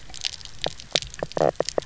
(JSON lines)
{"label": "biophony, knock croak", "recorder": "SoundTrap 300"}